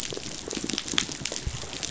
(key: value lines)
label: biophony, rattle response
recorder: SoundTrap 500